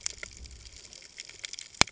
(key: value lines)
label: ambient
recorder: HydroMoth